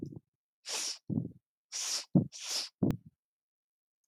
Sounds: Sniff